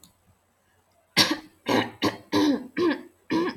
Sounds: Throat clearing